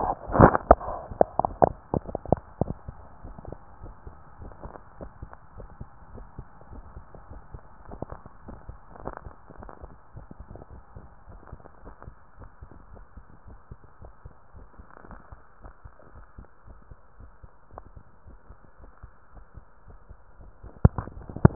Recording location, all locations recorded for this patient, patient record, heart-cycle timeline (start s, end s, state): tricuspid valve (TV)
aortic valve (AV)+pulmonary valve (PV)+tricuspid valve (TV)+mitral valve (MV)
#Age: nan
#Sex: Female
#Height: nan
#Weight: nan
#Pregnancy status: True
#Murmur: Absent
#Murmur locations: nan
#Most audible location: nan
#Systolic murmur timing: nan
#Systolic murmur shape: nan
#Systolic murmur grading: nan
#Systolic murmur pitch: nan
#Systolic murmur quality: nan
#Diastolic murmur timing: nan
#Diastolic murmur shape: nan
#Diastolic murmur grading: nan
#Diastolic murmur pitch: nan
#Diastolic murmur quality: nan
#Outcome: Abnormal
#Campaign: 2015 screening campaign
0.00	3.79	unannotated
3.79	3.96	S1
3.96	4.04	systole
4.04	4.18	S2
4.18	4.40	diastole
4.40	4.54	S1
4.54	4.62	systole
4.62	4.72	S2
4.72	4.98	diastole
4.98	5.12	S1
5.12	5.20	systole
5.20	5.30	S2
5.30	5.56	diastole
5.56	5.70	S1
5.70	5.78	systole
5.78	5.88	S2
5.88	6.12	diastole
6.12	6.28	S1
6.28	6.36	systole
6.36	6.46	S2
6.46	6.70	diastole
6.70	6.86	S1
6.86	6.94	systole
6.94	7.04	S2
7.04	7.28	diastole
7.28	7.44	S1
7.44	7.52	systole
7.52	7.62	S2
7.62	7.88	diastole
7.88	8.00	S1
8.00	8.10	systole
8.10	8.20	S2
8.20	8.46	diastole
8.46	8.60	S1
8.60	8.66	systole
8.66	8.78	S2
8.78	9.02	diastole
9.02	9.16	S1
9.16	9.24	systole
9.24	9.34	S2
9.34	9.56	diastole
9.56	9.70	S1
9.70	9.80	systole
9.80	9.92	S2
9.92	10.16	diastole
10.16	10.28	S1
10.28	10.38	systole
10.38	10.48	S2
10.48	10.72	diastole
10.72	10.84	S1
10.84	10.92	systole
10.92	11.04	S2
11.04	11.28	diastole
11.28	11.42	S1
11.42	11.48	systole
11.48	11.60	S2
11.60	11.84	diastole
11.84	11.96	S1
11.96	12.06	systole
12.06	12.16	S2
12.16	12.40	diastole
12.40	12.50	S1
12.50	12.60	systole
12.60	12.70	S2
12.70	12.92	diastole
12.92	13.06	S1
13.06	13.16	systole
13.16	13.24	S2
13.24	13.48	diastole
13.48	13.60	S1
13.60	13.70	systole
13.70	13.80	S2
13.80	14.02	diastole
14.02	14.14	S1
14.14	14.24	systole
14.24	14.34	S2
14.34	14.56	diastole
14.56	14.68	S1
14.68	14.78	systole
14.78	14.88	S2
14.88	15.10	diastole
15.10	15.20	S1
15.20	15.30	systole
15.30	15.40	S2
15.40	15.64	diastole
15.64	15.74	S1
15.74	15.82	systole
15.82	15.92	S2
15.92	16.16	diastole
16.16	16.26	S1
16.26	16.36	systole
16.36	16.46	S2
16.46	16.68	diastole
16.68	16.80	S1
16.80	16.88	systole
16.88	16.98	S2
16.98	17.20	diastole
17.20	17.32	S1
17.32	17.42	systole
17.42	17.50	S2
17.50	17.74	diastole
17.74	17.84	S1
17.84	17.90	systole
17.90	18.02	S2
18.02	18.28	diastole
18.28	18.40	S1
18.40	18.48	systole
18.48	18.56	S2
18.56	18.82	diastole
18.82	18.92	S1
18.92	19.02	systole
19.02	19.12	S2
19.12	19.36	diastole
19.36	19.46	S1
19.46	19.56	systole
19.56	19.66	S2
19.66	19.88	diastole
19.88	20.00	S1
20.00	21.55	unannotated